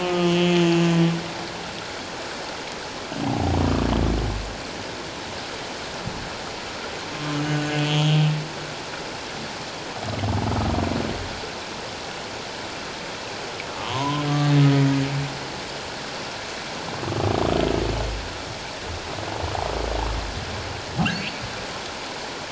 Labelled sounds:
0.0	0.9	humpback whale, 1.2 to 6.5 kHz
7.8	8.2	humpback whale, 2.9 to 3.5 kHz
13.7	14.3	humpback whale, 0.88 to 1.3 kHz
14.7	14.9	humpback whale, 1.9 to 2.0 kHz
21.1	21.4	humpback whale, 4.2 to 4.6 kHz

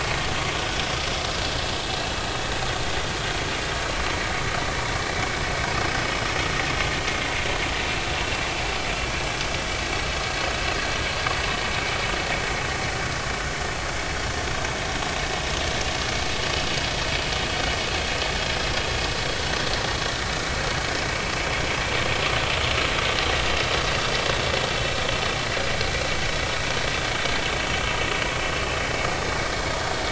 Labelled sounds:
5.1	5.3	vessel noise, 2.2 to 2.4 kHz

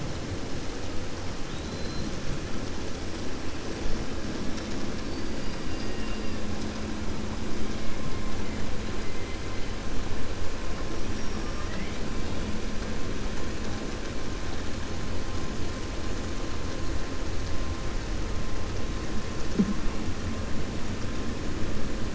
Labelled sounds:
1.4	2.1	killer whale, 3.1 to 4.3 kHz
11.0	12.0	killer whale, 0.61 to 5.8 kHz

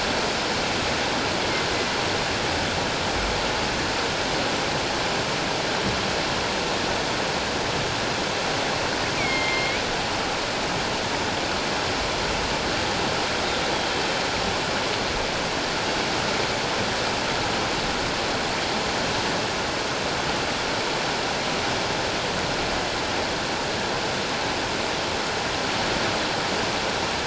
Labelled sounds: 9.2	9.9	killer whale, northern resident, A clan, AA subclan, 2.0 to 3.3 kHz

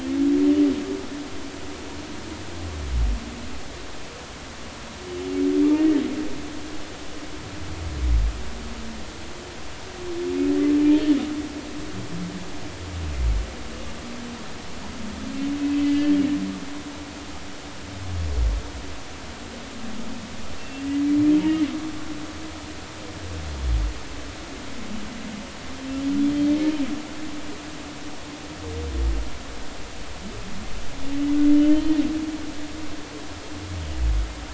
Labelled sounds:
5.8	6.0	humpback whale, 1.7 to 2.0 kHz
10.8	11.1	humpback whale, 2.9 to 3.2 kHz
15.8	16.1	humpback whale, 1.98 to 2.05 kHz
20.6	20.9	humpback whale, 2.6 to 2.8 kHz
31.7	32.0	humpback whale, 3.0 to 3.2 kHz

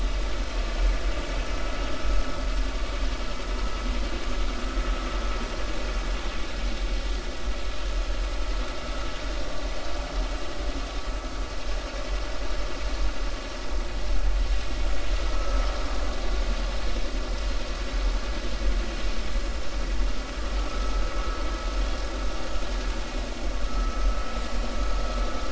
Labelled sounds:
15.3	15.6	vessel noise, 1.2 to 1.4 kHz
23.7	24.0	vessel noise, 1.2 to 1.3 kHz

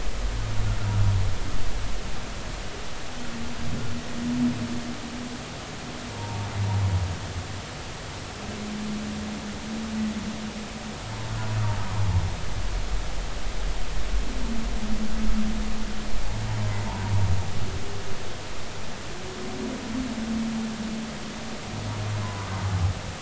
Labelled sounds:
6.1	6.5	humpback whale, 0.80 to 0.99 kHz
22.2	22.5	humpback whale, 0.96 to 1.1 kHz

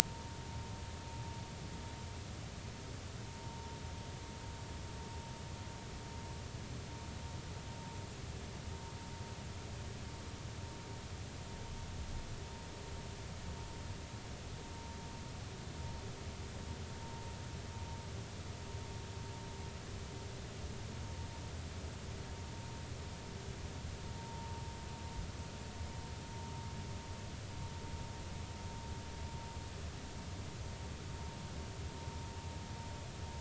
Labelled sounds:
3.4	3.7	vessel noise, 0.90 to 1.1 kHz
24.2	24.6	vessel noise, 0.86 to 0.99 kHz

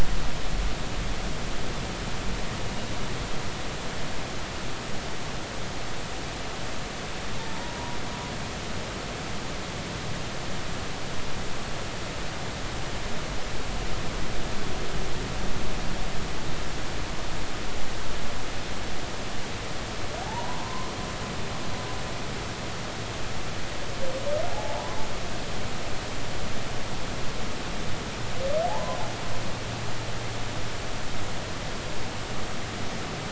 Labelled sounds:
7.4	8.0	humpback whale, 0.86 to 0.99 kHz
20.2	20.9	humpback whale, 0.80 to 1.1 kHz
24.5	25.0	humpback whale, 0.80 to 1.1 kHz
28.7	29.0	humpback whale, 0.80 to 1.1 kHz

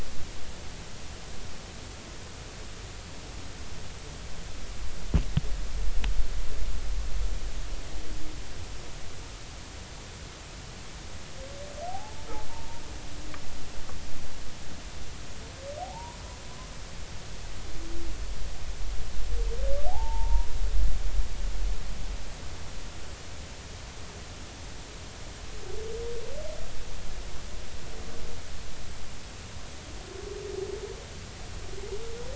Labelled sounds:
11.9	12.3	humpback whale, 0.80 to 0.93 kHz
15.8	16.2	humpback whale, 0.80 to 1.0 kHz
19.9	20.5	humpback whale, 0.80 to 1.0 kHz

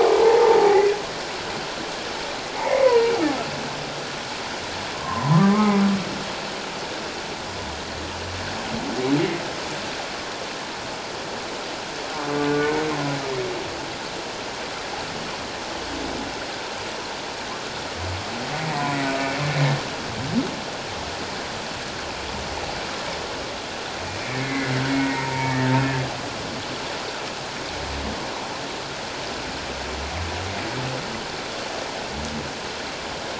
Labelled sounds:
0.0	0.9	humpback whale, 0.78 to 2.1 kHz
2.5	3.1	humpback whale, 0.78 to 2.3 kHz
4.9	5.8	humpback whale, 0.91 to 2.2 kHz
12.5	12.8	humpback whale, 1.4 to 1.6 kHz
24.2	25.6	humpback whale, 0.88 to 2.5 kHz

